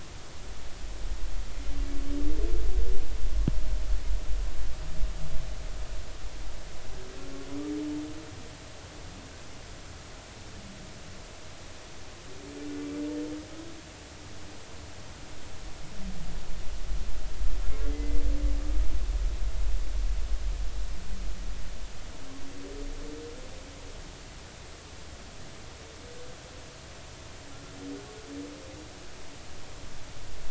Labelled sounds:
17.9	18.2	humpback whale, 2.0 to 2.1 kHz

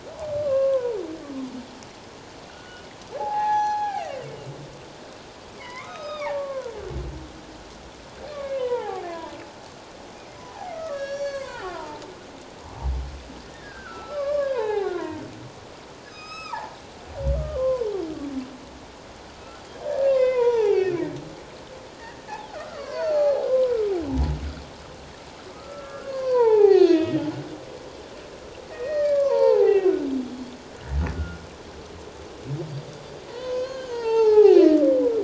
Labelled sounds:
0.4	1.0	humpback whale, 0.88 to 1.2 kHz
2.5	2.8	humpback whale, 1.3 to 1.6 kHz
3.1	4.1	humpback whale, 0.78 to 5.9 kHz
5.6	6.7	humpback whale, 0.78 to 6.4 kHz
8.3	9.3	humpback whale, 0.78 to 2.6 kHz
10.4	12.1	humpback whale, 0.78 to 7.4 kHz
13.5	15.3	humpback whale, 0.78 to 2.4 kHz
16.1	16.8	humpback whale, 0.78 to 7.9 kHz
17.4	17.9	humpback whale, 0.91 to 1.3 kHz
19.4	21.0	humpback whale, 0.78 to 3.8 kHz
22.3	23.8	humpback whale, 0.78 to 4.6 kHz
25.5	27.3	humpback whale, 0.78 to 5.0 kHz
28.7	30.1	humpback whale, 0.78 to 4.6 kHz
33.3	34.7	humpback whale, 0.78 to 6.4 kHz

